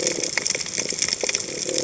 {"label": "biophony", "recorder": "HydroMoth"}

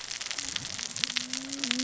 {"label": "biophony, cascading saw", "recorder": "SoundTrap 600 or HydroMoth"}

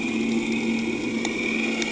{"label": "anthrophony, boat engine", "recorder": "HydroMoth"}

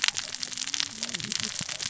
{"label": "biophony, cascading saw", "recorder": "SoundTrap 600 or HydroMoth"}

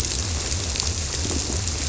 {"label": "biophony", "recorder": "SoundTrap 300"}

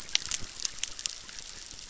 {"label": "biophony, chorus", "recorder": "SoundTrap 600"}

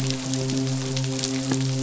{"label": "biophony, midshipman", "recorder": "SoundTrap 500"}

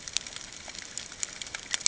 {"label": "ambient", "recorder": "HydroMoth"}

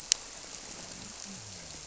{"label": "biophony", "recorder": "SoundTrap 300"}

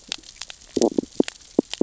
{"label": "biophony, stridulation", "recorder": "SoundTrap 600 or HydroMoth"}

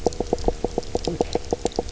{"label": "biophony, knock croak", "recorder": "SoundTrap 300"}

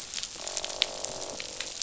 {"label": "biophony, croak", "recorder": "SoundTrap 500"}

